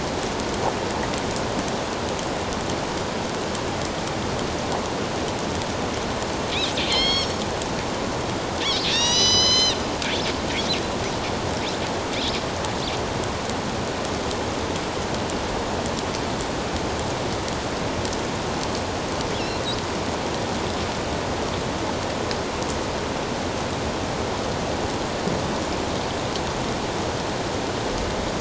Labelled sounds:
6.9	7.4	killer whale, northern resident, A clan, AB subclan, 2.0 to 6.7 kHz
8.9	9.8	killer whale, northern resident, A clan, AB subclan, 1.8 to 7.2 kHz

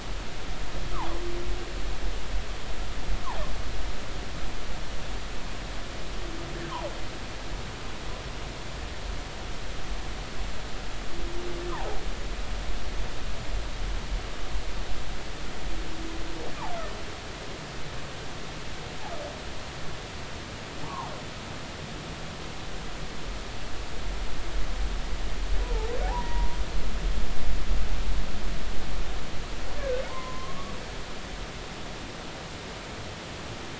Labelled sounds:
11.7	12.0	humpback whale, 0.80 to 1.3 kHz
20.8	21.1	humpback whale, 0.80 to 1.2 kHz
25.6	26.6	humpback whale, 0.80 to 1.1 kHz
29.8	30.7	humpback whale, 0.83 to 1.8 kHz

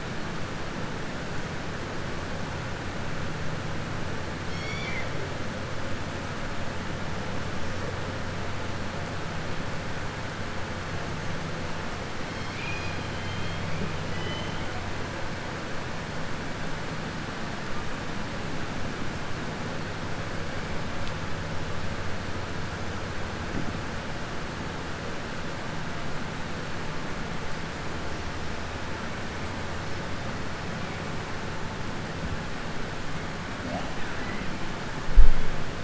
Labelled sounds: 4.4	5.1	killer whale, southern resident, 1.9 to 6.8 kHz
12.2	13.6	killer whale, southern resident, 2.1 to 6.6 kHz
14.0	14.6	killer whale, southern resident, 2.0 to 3.2 kHz
33.9	34.4	killer whale, southern resident, 0.95 to 2.7 kHz

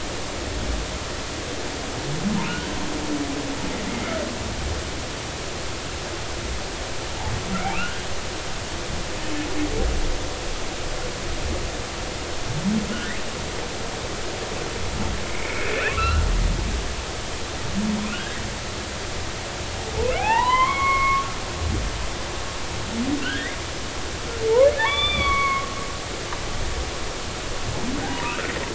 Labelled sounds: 3.9	4.2	humpback whale, 2.0 to 2.2 kHz
7.6	8.0	humpback whale, 1.2 to 2.9 kHz
12.9	13.2	humpback whale, 1.4 to 2.2 kHz
15.3	16.2	humpback whale, 1.0 to 2.8 kHz
18.1	18.4	humpback whale, 1.3 to 1.8 kHz
20.1	21.2	humpback whale, 0.80 to 4.1 kHz
23.2	23.6	humpback whale, 1.3 to 3.4 kHz
24.8	25.7	humpback whale, 0.83 to 3.6 kHz
28.1	28.5	humpback whale, 0.90 to 1.5 kHz

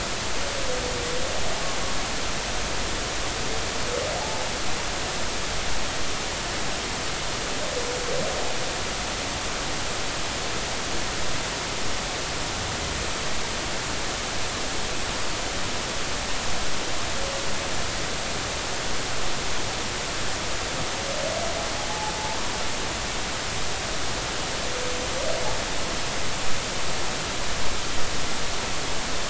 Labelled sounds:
4.2	4.5	humpback whale, 0.80 to 0.96 kHz

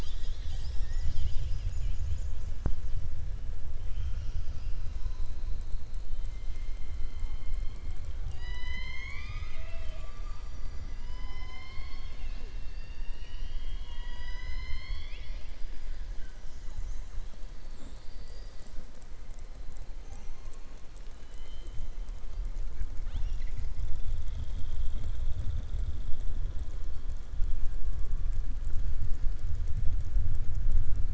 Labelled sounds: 17.6	18.7	killer whale, southern resident, 3.5 to 5.5 kHz
21.2	21.8	killer whale, southern resident, 2.0 to 4.2 kHz

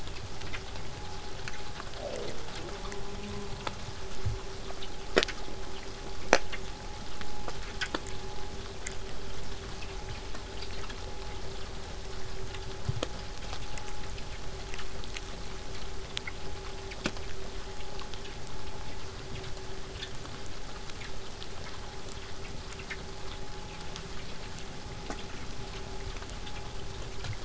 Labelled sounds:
14.1	19.1	vessel noise, 0 to 8.0 kHz

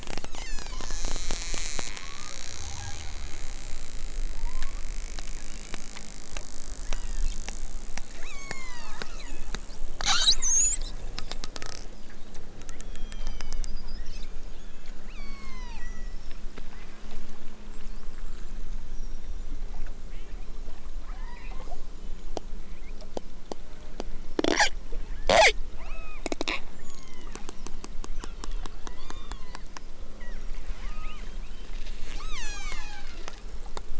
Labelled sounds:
0.2	1.1	killer whale, southern Alaska resident, 0.37 to 8.0 kHz
1.8	3.1	killer whale, southern Alaska resident, 0.60 to 2.1 kHz
4.3	4.9	killer whale, southern Alaska resident, 0.41 to 1.5 kHz
5.5	6.0	killer whale, southern Alaska resident, 1.1 to 3.2 kHz
6.8	7.3	killer whale, southern Alaska resident, 1.4 to 5.6 kHz
8.1	9.6	killer whale, southern Alaska resident, 0.50 to 8.0 kHz
10.0	11.0	killer whale, southern Alaska resident, 0.37 to 8.0 kHz
12.7	13.8	killer whale, southern Alaska resident, 1.9 to 6.3 kHz
14.5	16.2	killer whale, southern Alaska resident, 0.64 to 8.0 kHz
20.0	20.5	killer whale, southern Alaska resident, 1.4 to 3.5 kHz
21.1	21.7	killer whale, southern Alaska resident, 0.73 to 6.0 kHz
25.8	26.3	killer whale, southern Alaska resident, 0.64 to 4.3 kHz
26.8	27.5	killer whale, southern Alaska resident, 0.50 to 3.8 kHz
28.2	29.7	killer whale, southern Alaska resident, 0.55 to 7.1 kHz
30.0	33.4	killer whale, southern Alaska resident, 0.46 to 8.0 kHz

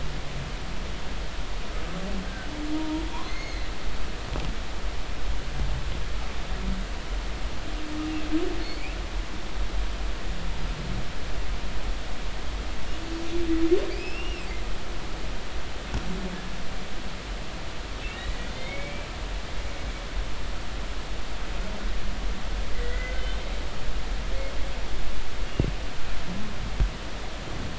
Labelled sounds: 2.7	3.7	humpback whale, 0.90 to 6.6 kHz
8.6	9.0	humpback whale, 2.1 to 4.6 kHz
13.9	14.5	humpback whale, 2.2 to 5.4 kHz
18.0	19.1	humpback whale, 2.0 to 3.7 kHz
22.7	23.2	humpback whale, 1.4 to 2.1 kHz

